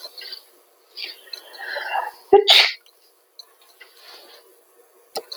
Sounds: Sneeze